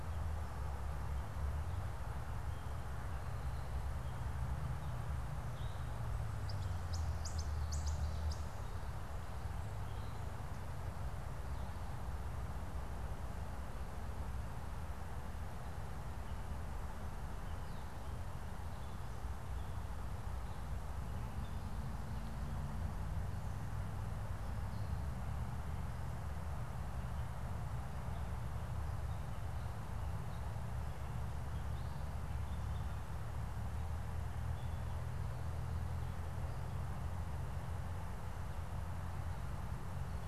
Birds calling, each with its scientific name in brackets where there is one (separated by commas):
Gray Catbird (Dumetella carolinensis), Ovenbird (Seiurus aurocapilla)